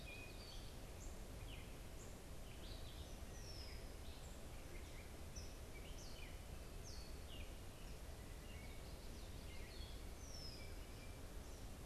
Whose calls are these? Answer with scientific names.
Dumetella carolinensis, Agelaius phoeniceus, unidentified bird